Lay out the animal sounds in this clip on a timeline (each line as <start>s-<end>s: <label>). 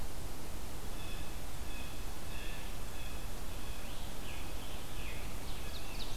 0.8s-3.8s: Blue Jay (Cyanocitta cristata)
3.6s-6.0s: Scarlet Tanager (Piranga olivacea)
5.3s-6.2s: Ovenbird (Seiurus aurocapilla)
5.4s-6.2s: Blue Jay (Cyanocitta cristata)